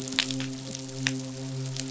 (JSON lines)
{"label": "biophony, midshipman", "recorder": "SoundTrap 500"}